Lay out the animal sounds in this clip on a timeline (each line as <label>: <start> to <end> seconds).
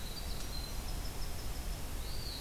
Winter Wren (Troglodytes hiemalis): 0.0 to 2.2 seconds
Eastern Wood-Pewee (Contopus virens): 1.9 to 2.4 seconds